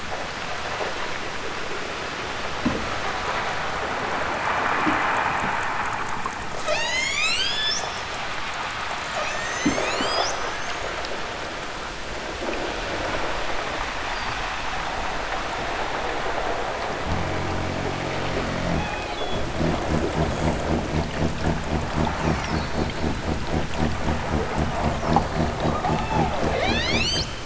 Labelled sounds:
6.6	8.1	killer whale, southern Alaska resident, 0.28 to 8.0 kHz
9.1	11.0	killer whale, southern Alaska resident, 1.2 to 8.0 kHz
18.7	19.5	killer whale, southern Alaska resident, 1.2 to 5.3 kHz
25.9	27.3	killer whale, southern Alaska resident, 1.0 to 8.0 kHz

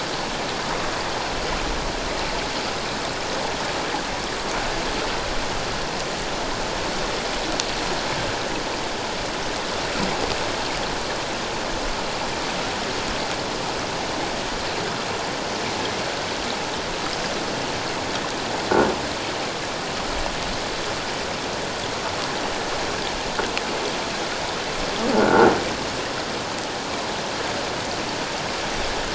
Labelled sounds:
25.1	25.5	croaking sound likely from a nearby submerged object, 1.3 to 1.6 kHz

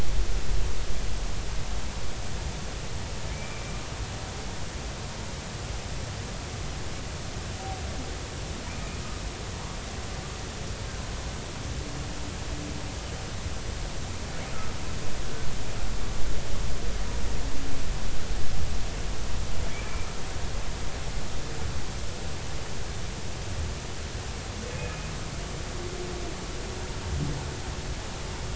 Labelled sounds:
3.3	3.8	humpback whale, 2.1 to 2.5 kHz
19.7	20.1	humpback whale, 2.2 to 2.5 kHz
24.8	25.1	humpback whale, 2.4 to 2.6 kHz

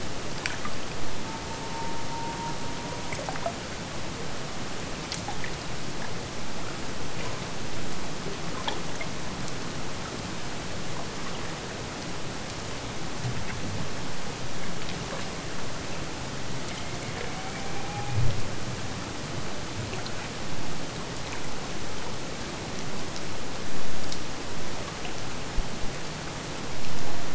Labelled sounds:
1.2	3.2	killer whale, Bigg's (transient), AT1 transient, 0.77 to 1.4 kHz
16.5	18.5	killer whale, Bigg's (transient), AT1 transient, 0.65 to 2.7 kHz

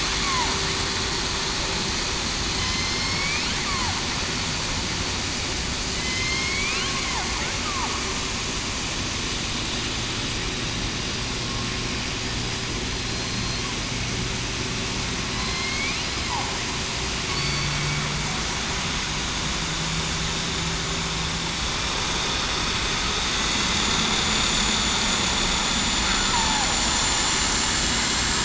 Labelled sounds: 2.5	3.3	killer whale, southern resident, 4.1 to 5.6 kHz
5.9	6.9	killer whale, southern resident, 2.0 to 5.5 kHz
12.9	13.6	killer whale, southern resident, 4.1 to 4.3 kHz
15.4	15.7	killer whale, southern resident, 4.0 to 4.2 kHz
17.3	17.7	killer whale, southern resident, 4.4 to 4.6 kHz
23.5	24.7	vessel noise, 6.7 to 7.1 kHz
25.6	28.4	vessel noise, 7.0 to 7.5 kHz
26.3	26.7	killer whale, southern resident, 0.75 to 0.96 kHz

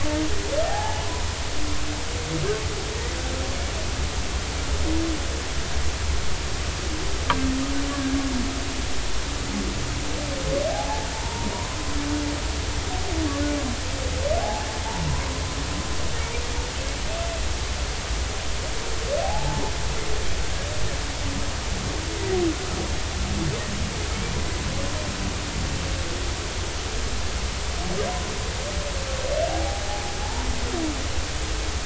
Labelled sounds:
0.7	1.0	humpback whale, 0.80 to 1.8 kHz
7.9	8.2	humpback whale, 1.6 to 1.7 kHz
10.7	11.5	humpback whale, 0.80 to 1.0 kHz
14.4	14.7	humpback whale, 0.80 to 0.93 kHz
19.2	19.6	humpback whale, 0.80 to 0.93 kHz
29.5	29.8	humpback whale, 0.80 to 0.86 kHz

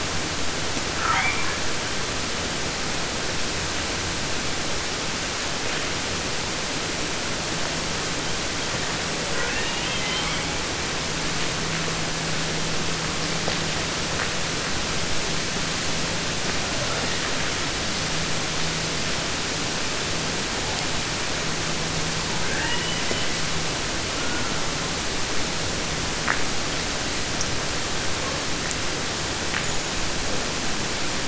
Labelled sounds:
1.0	1.7	killer whale, 0.50 to 4.6 kHz
9.2	10.7	killer whale, 0.30 to 5.2 kHz
16.7	17.4	killer whale, 0.09 to 4.6 kHz
22.3	23.6	killer whale, southern resident, 0.50 to 3.4 kHz
23.9	25.1	killer whale, 0.33 to 2.7 kHz

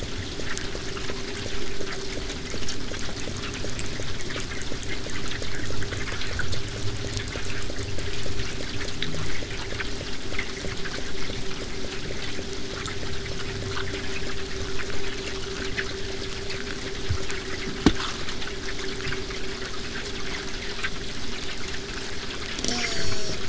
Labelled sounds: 22.7	23.4	killer whale, southern resident, J pod, call S04, 0.15 to 8.0 kHz

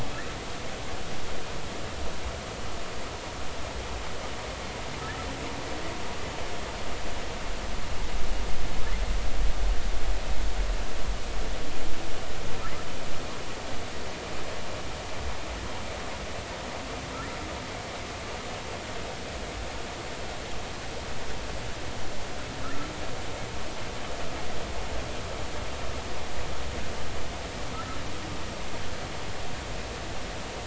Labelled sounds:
22.6	22.9	humpback whale, 1.2 to 1.5 kHz

